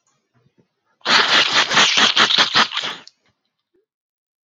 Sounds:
Sneeze